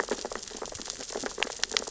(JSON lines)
{"label": "biophony, sea urchins (Echinidae)", "recorder": "SoundTrap 600 or HydroMoth"}